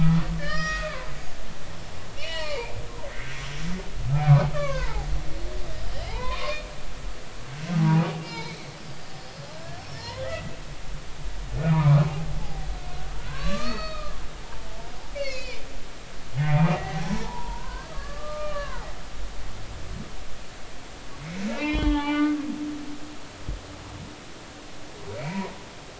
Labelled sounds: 0.0	1.1	humpback whale, 0.96 to 6.9 kHz
2.2	2.7	humpback whale, 0.86 to 4.7 kHz
3.1	3.3	humpback whale, 1.8 to 2.2 kHz
4.5	5.1	humpback whale, 0.80 to 2.9 kHz
6.1	6.7	humpback whale, 0.80 to 3.8 kHz
8.2	9.2	humpback whale, 2.1 to 4.9 kHz
9.6	10.5	humpback whale, 1.6 to 5.6 kHz
11.7	12.7	humpback whale, 0.80 to 1.3 kHz
13.1	14.1	humpback whale, 0.96 to 5.1 kHz
15.1	15.6	humpback whale, 2.0 to 5.4 kHz
16.4	19.8	humpback whale, 0.80 to 4.7 kHz
21.2	22.5	humpback whale, 0.80 to 3.4 kHz
25.2	25.5	humpback whale, 0.90 to 2.4 kHz

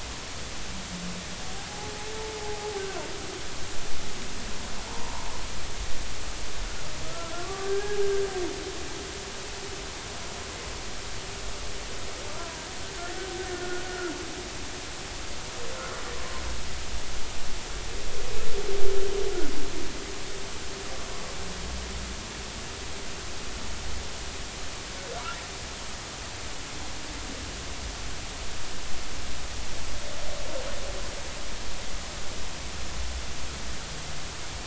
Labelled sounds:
2.4	2.7	humpback whale, 0.80 to 0.90 kHz
4.9	5.2	humpback whale, 0.83 to 1.2 kHz
7.0	8.0	humpback whale, 0.80 to 1.7 kHz
13.5	14.1	humpback whale, 1.3 to 1.9 kHz

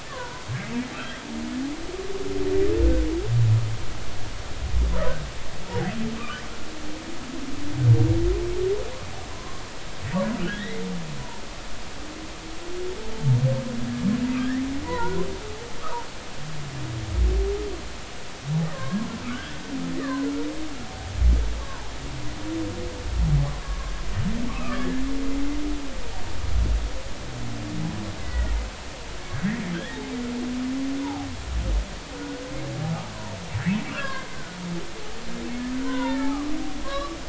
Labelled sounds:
0.1	0.4	humpback whale, 0.93 to 1.8 kHz
0.9	1.2	humpback whale, 1.3 to 2.0 kHz
6.2	6.4	humpback whale, 1.1 to 1.9 kHz
9.3	9.6	humpback whale, 0.96 to 1.1 kHz
10.4	10.8	humpback whale, 1.4 to 2.2 kHz
14.4	15.2	humpback whale, 0.86 to 2.1 kHz
15.8	16.1	humpback whale, 0.86 to 1.3 kHz
18.7	19.6	humpback whale, 0.99 to 1.9 kHz
20.0	20.3	humpback whale, 0.96 to 2.0 kHz
21.6	21.9	humpback whale, 0.80 to 1.2 kHz
23.6	25.0	humpback whale, 1.0 to 2.0 kHz
28.2	28.5	humpback whale, 1.3 to 2.1 kHz
29.3	30.0	humpback whale, 1.4 to 2.1 kHz
31.0	31.3	humpback whale, 0.80 to 1.0 kHz
32.2	32.4	humpback whale, 1.4 to 1.5 kHz
33.9	34.6	humpback whale, 0.99 to 1.7 kHz
35.8	37.2	humpback whale, 0.80 to 4.1 kHz

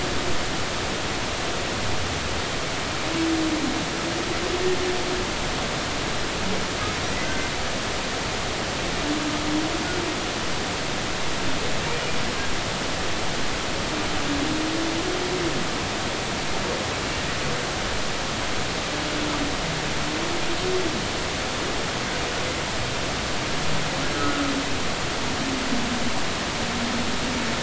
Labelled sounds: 7.2	7.5	humpback whale, 1.5 to 1.6 kHz
24.1	24.4	humpback whale, 1.4 to 1.5 kHz

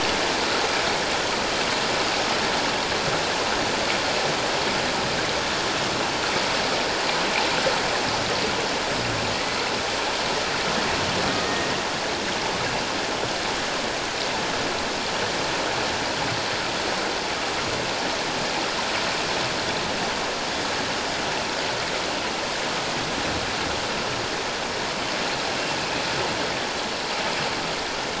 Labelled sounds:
9.3	9.6	killer whale, Bigg's (transient), 1.8 to 2.2 kHz
25.8	26.0	killer whale, Bigg's (transient), 2.5 to 2.7 kHz

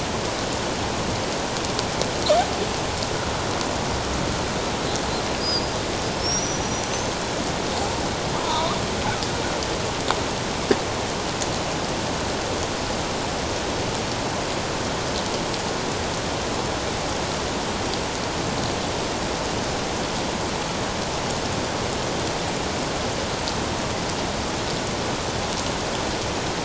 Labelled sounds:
5.4	5.7	killer whale, Bigg's (transient), 4.5 to 5.1 kHz
6.1	7.1	killer whale, Bigg's (transient), 5.1 to 6.4 kHz
8.4	8.8	killer whale, Bigg's (transient), 0.88 to 1.3 kHz

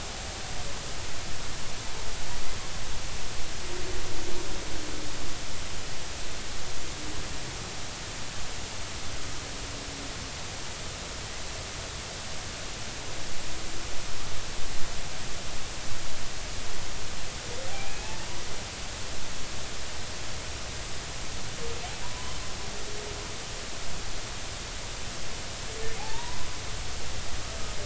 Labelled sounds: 17.7	18.3	humpback whale, 0.80 to 2.7 kHz
22.0	22.4	humpback whale, 0.93 to 1.1 kHz
26.0	26.4	humpback whale, 0.80 to 1.1 kHz

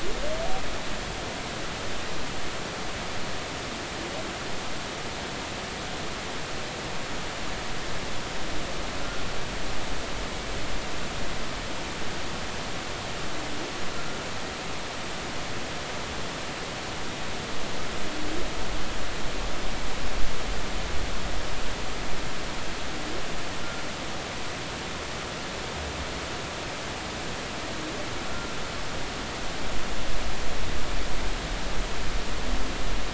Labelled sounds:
28.3	28.5	humpback whale, 1.3 to 1.4 kHz

